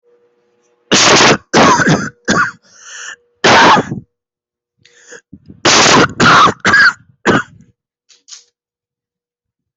{"expert_labels": [{"quality": "ok", "cough_type": "dry", "dyspnea": false, "wheezing": false, "stridor": false, "choking": false, "congestion": false, "nothing": true, "diagnosis": "obstructive lung disease", "severity": "severe"}], "age": 24, "gender": "male", "respiratory_condition": false, "fever_muscle_pain": false, "status": "symptomatic"}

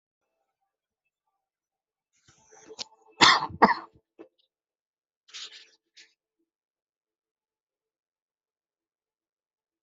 {"expert_labels": [{"quality": "ok", "cough_type": "unknown", "dyspnea": false, "wheezing": false, "stridor": false, "choking": false, "congestion": false, "nothing": true, "diagnosis": "healthy cough", "severity": "pseudocough/healthy cough"}], "age": 47, "gender": "female", "respiratory_condition": false, "fever_muscle_pain": false, "status": "healthy"}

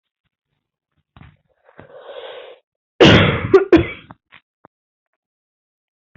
{"expert_labels": [{"quality": "good", "cough_type": "dry", "dyspnea": false, "wheezing": false, "stridor": false, "choking": false, "congestion": false, "nothing": false, "diagnosis": "COVID-19", "severity": "mild"}], "age": 28, "gender": "female", "respiratory_condition": false, "fever_muscle_pain": false, "status": "symptomatic"}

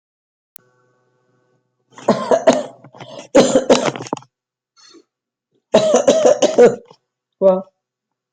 {"expert_labels": [{"quality": "ok", "cough_type": "dry", "dyspnea": false, "wheezing": false, "stridor": false, "choking": false, "congestion": false, "nothing": true, "diagnosis": "COVID-19", "severity": "mild"}], "age": 60, "gender": "female", "respiratory_condition": false, "fever_muscle_pain": false, "status": "healthy"}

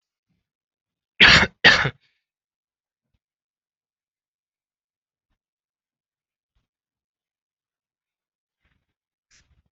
{"expert_labels": [{"quality": "good", "cough_type": "dry", "dyspnea": false, "wheezing": false, "stridor": false, "choking": false, "congestion": false, "nothing": true, "diagnosis": "healthy cough", "severity": "pseudocough/healthy cough"}], "age": 20, "gender": "female", "respiratory_condition": true, "fever_muscle_pain": true, "status": "COVID-19"}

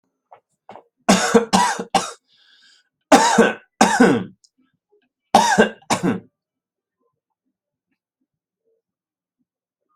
{"expert_labels": [{"quality": "good", "cough_type": "dry", "dyspnea": false, "wheezing": false, "stridor": false, "choking": false, "congestion": false, "nothing": true, "diagnosis": "upper respiratory tract infection", "severity": "mild"}], "age": 42, "gender": "male", "respiratory_condition": false, "fever_muscle_pain": false, "status": "healthy"}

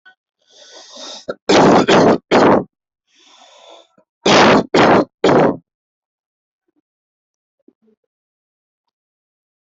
{"expert_labels": [{"quality": "poor", "cough_type": "unknown", "dyspnea": false, "wheezing": false, "stridor": false, "choking": false, "congestion": false, "nothing": true, "diagnosis": "lower respiratory tract infection", "severity": "mild"}]}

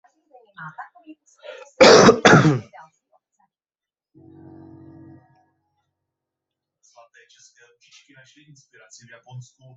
{"expert_labels": [{"quality": "good", "cough_type": "dry", "dyspnea": false, "wheezing": false, "stridor": false, "choking": false, "congestion": false, "nothing": true, "diagnosis": "healthy cough", "severity": "pseudocough/healthy cough"}], "age": 22, "gender": "male", "respiratory_condition": true, "fever_muscle_pain": false, "status": "COVID-19"}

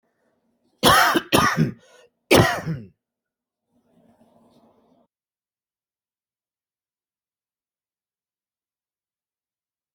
{"expert_labels": [{"quality": "good", "cough_type": "wet", "dyspnea": false, "wheezing": false, "stridor": false, "choking": false, "congestion": false, "nothing": true, "diagnosis": "obstructive lung disease", "severity": "mild"}], "age": 60, "gender": "male", "respiratory_condition": false, "fever_muscle_pain": false, "status": "COVID-19"}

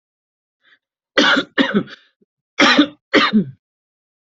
{"expert_labels": [{"quality": "good", "cough_type": "dry", "dyspnea": false, "wheezing": false, "stridor": false, "choking": false, "congestion": false, "nothing": true, "diagnosis": "upper respiratory tract infection", "severity": "mild"}], "age": 53, "gender": "male", "respiratory_condition": false, "fever_muscle_pain": false, "status": "symptomatic"}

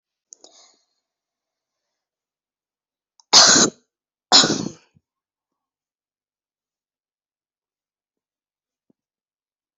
{"expert_labels": [{"quality": "good", "cough_type": "dry", "dyspnea": false, "wheezing": false, "stridor": false, "choking": false, "congestion": false, "nothing": true, "diagnosis": "upper respiratory tract infection", "severity": "mild"}], "age": 19, "gender": "female", "respiratory_condition": false, "fever_muscle_pain": true, "status": "symptomatic"}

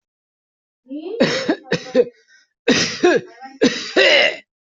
{"expert_labels": [{"quality": "ok", "cough_type": "unknown", "dyspnea": false, "wheezing": false, "stridor": false, "choking": false, "congestion": false, "nothing": true, "diagnosis": "healthy cough", "severity": "pseudocough/healthy cough"}], "age": 35, "gender": "male", "respiratory_condition": false, "fever_muscle_pain": false, "status": "healthy"}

